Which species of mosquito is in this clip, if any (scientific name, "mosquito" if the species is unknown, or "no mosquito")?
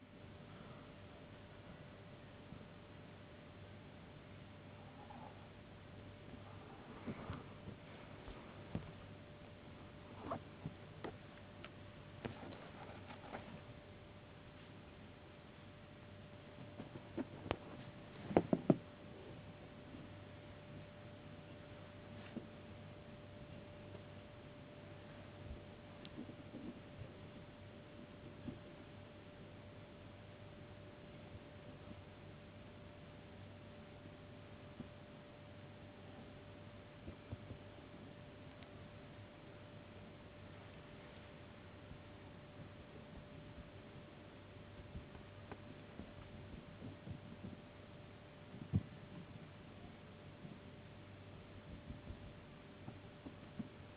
no mosquito